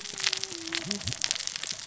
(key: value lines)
label: biophony, cascading saw
recorder: SoundTrap 600 or HydroMoth